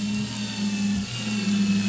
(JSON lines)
{"label": "anthrophony, boat engine", "recorder": "SoundTrap 500"}